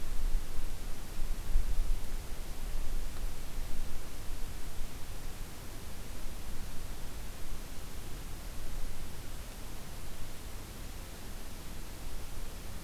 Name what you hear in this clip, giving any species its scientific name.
forest ambience